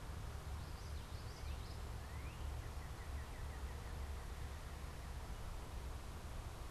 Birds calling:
Common Yellowthroat (Geothlypis trichas), Northern Cardinal (Cardinalis cardinalis)

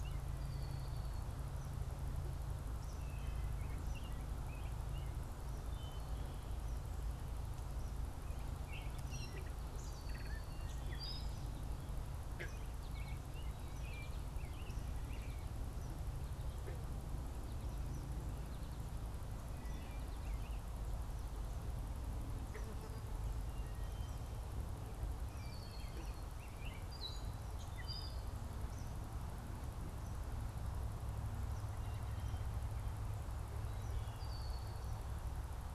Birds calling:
Wood Thrush (Hylocichla mustelina), Red-winged Blackbird (Agelaius phoeniceus), Gray Catbird (Dumetella carolinensis), American Goldfinch (Spinus tristis), Eastern Kingbird (Tyrannus tyrannus), American Robin (Turdus migratorius)

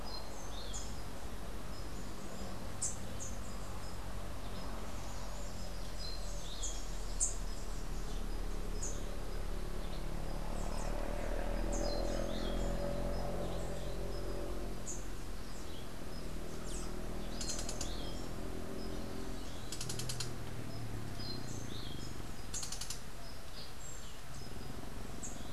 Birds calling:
Orange-billed Nightingale-Thrush (Catharus aurantiirostris)

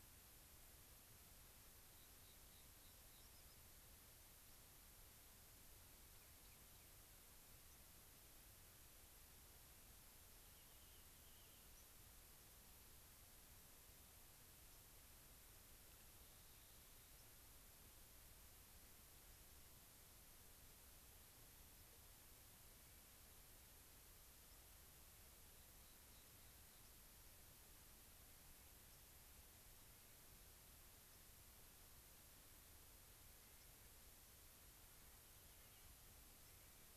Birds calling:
Clark's Nutcracker (Nucifraga columbiana), unidentified bird, White-crowned Sparrow (Zonotrichia leucophrys), Rock Wren (Salpinctes obsoletus)

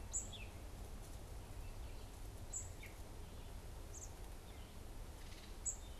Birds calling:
unidentified bird

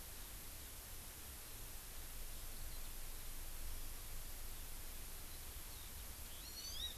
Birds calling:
Hawaii Amakihi (Chlorodrepanis virens), Eurasian Skylark (Alauda arvensis)

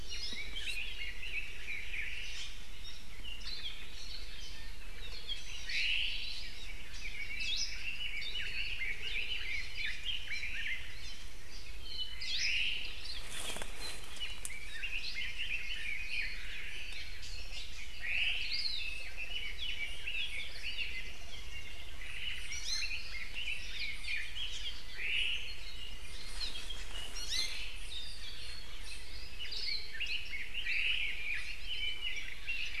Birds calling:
Iiwi (Drepanis coccinea), Hawaii Creeper (Loxops mana), Omao (Myadestes obscurus), Hawaii Akepa (Loxops coccineus), Apapane (Himatione sanguinea), Red-billed Leiothrix (Leiothrix lutea)

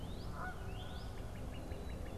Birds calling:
Northern Cardinal (Cardinalis cardinalis), Canada Goose (Branta canadensis)

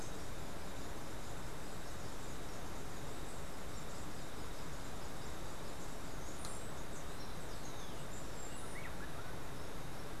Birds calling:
Whiskered Wren (Pheugopedius mystacalis), Black-capped Tanager (Stilpnia heinei)

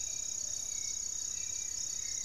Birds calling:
Plain-winged Antshrike (Thamnophilus schistaceus), Plumbeous Pigeon (Patagioenas plumbea), Hauxwell's Thrush (Turdus hauxwelli), Goeldi's Antbird (Akletos goeldii)

